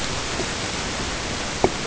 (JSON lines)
{"label": "ambient", "recorder": "HydroMoth"}